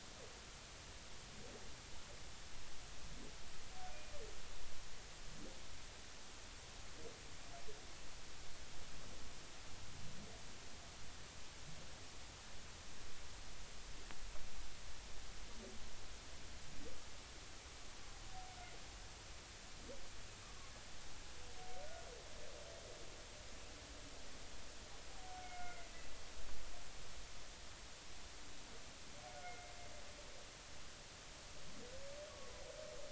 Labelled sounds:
25.3	25.9	humpback whale, 1.4 to 2.2 kHz
29.4	29.7	humpback whale, 2.1 to 2.2 kHz

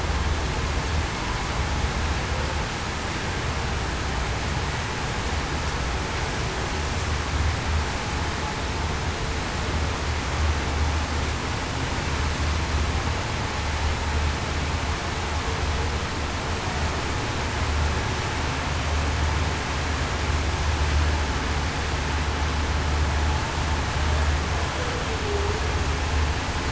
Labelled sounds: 25.2	25.6	humpback whale, 0.38 to 0.45 kHz

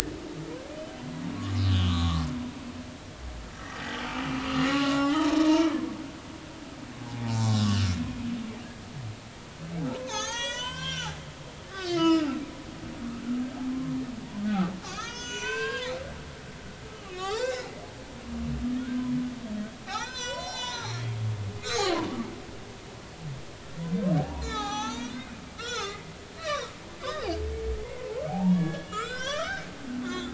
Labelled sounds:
1.5	2.2	humpback whale, 0.99 to 3.0 kHz
3.5	4.0	humpback whale, 1.8 to 3.3 kHz
4.5	5.9	humpback whale, 0.80 to 5.6 kHz
7.3	7.6	humpback whale, 0.86 to 1.1 kHz
8.0	8.4	humpback whale, 0.80 to 1.1 kHz
10.0	12.4	humpback whale, 0.80 to 7.8 kHz
14.5	15.9	humpback whale, 0.90 to 7.5 kHz
16.9	17.7	humpback whale, 0.80 to 5.4 kHz
18.8	19.1	humpback whale, 1.3 to 1.6 kHz
19.9	21.1	humpback whale, 0.80 to 7.8 kHz
21.6	22.3	humpback whale, 0.93 to 7.0 kHz
24.4	26.7	humpback whale, 0.80 to 7.5 kHz
27.0	27.4	humpback whale, 3.4 to 5.3 kHz
27.8	30.3	humpback whale, 0.80 to 7.7 kHz

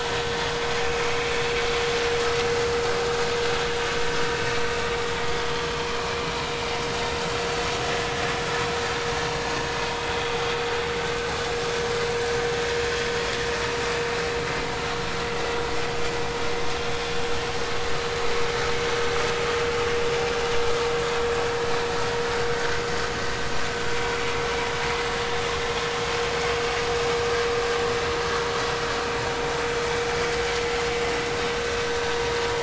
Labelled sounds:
1.0	1.3	vessel noise, 2.0 to 2.3 kHz
6.0	6.2	vessel noise, 2.3 to 2.5 kHz
9.3	9.5	vessel noise, 4.2 to 4.4 kHz

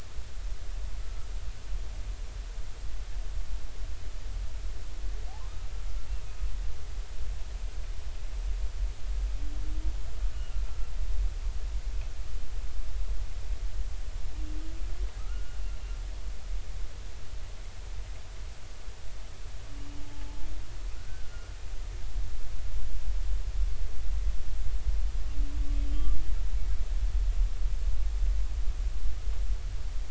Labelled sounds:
1.0	1.3	humpback whale, 1.2 to 1.4 kHz
10.3	10.9	humpback whale, 1.3 to 2.9 kHz
15.2	15.6	humpback whale, 1.2 to 1.5 kHz
20.1	20.5	humpback whale, 0.83 to 0.93 kHz
21.0	21.5	humpback whale, 1.3 to 1.6 kHz
25.8	26.1	humpback whale, 3.1 to 3.3 kHz

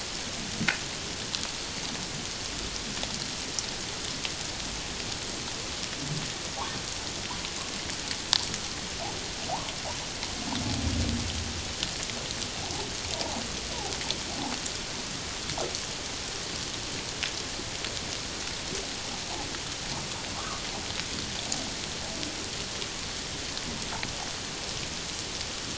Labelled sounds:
20.4	20.6	humpback whale, 1.1 to 1.3 kHz

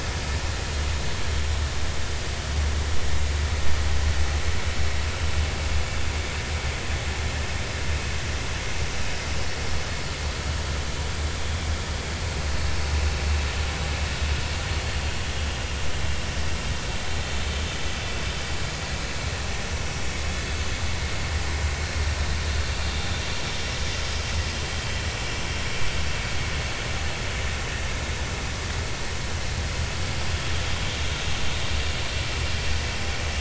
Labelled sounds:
12.9	13.2	vessel noise, 2.5 to 2.7 kHz

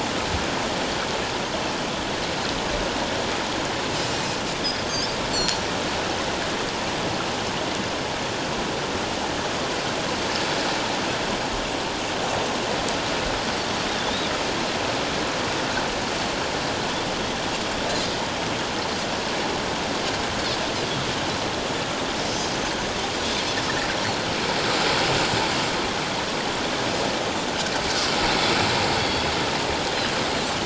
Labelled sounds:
4.9	5.6	Pacific white-sided dolphin, 4.2 to 7.6 kHz
29.0	29.2	Pacific white-sided dolphin, 3.3 to 3.4 kHz

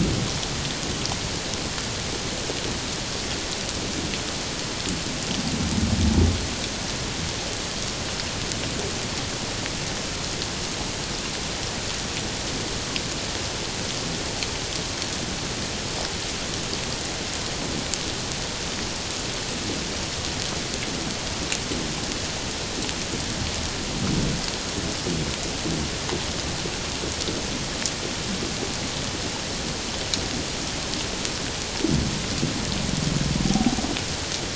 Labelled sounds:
33.4	33.7	humpback whale, 0.78 to 0.88 kHz

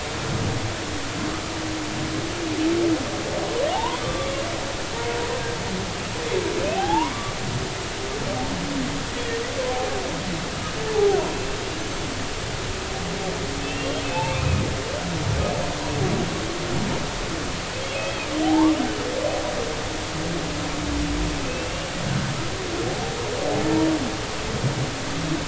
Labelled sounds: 3.7	4.4	humpback whale, 0.80 to 3.6 kHz
6.7	7.1	humpback whale, 0.80 to 1.1 kHz
10.9	11.2	humpback whale, 0.80 to 0.90 kHz
13.6	14.7	humpback whale, 0.80 to 2.8 kHz
17.9	18.7	humpback whale, 0.80 to 2.7 kHz

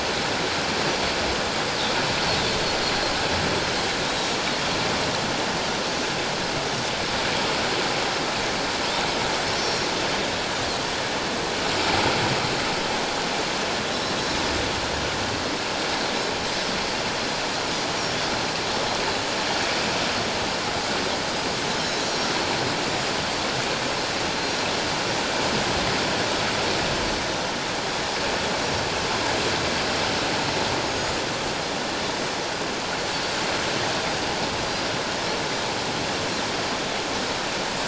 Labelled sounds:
4.0	4.4	Pacific white-sided dolphin, 3.6 to 3.9 kHz
9.6	9.9	Pacific white-sided dolphin, 5.4 to 5.6 kHz
21.8	22.1	Pacific white-sided dolphin, 3.8 to 5.6 kHz
30.8	31.1	Pacific white-sided dolphin, 6.5 to 6.6 kHz

